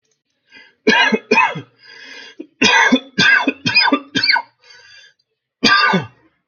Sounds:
Cough